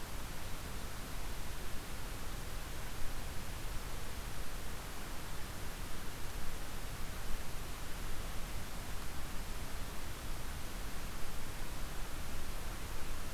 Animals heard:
forest ambience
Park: Marsh-Billings-Rockefeller National Historical Park